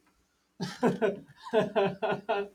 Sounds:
Laughter